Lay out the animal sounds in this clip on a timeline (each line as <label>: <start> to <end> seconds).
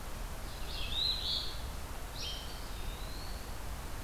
Red-eyed Vireo (Vireo olivaceus): 0.0 to 4.0 seconds
Eastern Phoebe (Sayornis phoebe): 0.7 to 1.7 seconds
Eastern Wood-Pewee (Contopus virens): 2.2 to 3.5 seconds